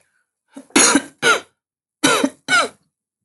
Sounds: Cough